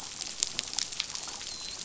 {"label": "biophony, dolphin", "recorder": "SoundTrap 500"}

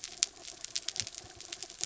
{"label": "anthrophony, mechanical", "recorder": "SoundTrap 300"}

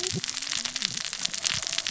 {"label": "biophony, cascading saw", "recorder": "SoundTrap 600 or HydroMoth"}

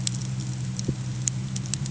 {"label": "anthrophony, boat engine", "recorder": "HydroMoth"}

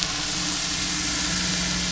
{"label": "anthrophony, boat engine", "recorder": "SoundTrap 500"}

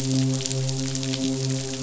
{"label": "biophony, midshipman", "recorder": "SoundTrap 500"}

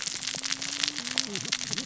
{"label": "biophony, cascading saw", "recorder": "SoundTrap 600 or HydroMoth"}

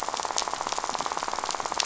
{"label": "biophony, rattle", "recorder": "SoundTrap 500"}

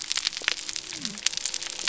{"label": "biophony", "recorder": "SoundTrap 300"}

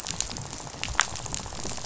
{"label": "biophony, rattle", "recorder": "SoundTrap 500"}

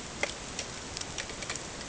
{"label": "ambient", "recorder": "HydroMoth"}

